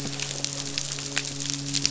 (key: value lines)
label: biophony, midshipman
recorder: SoundTrap 500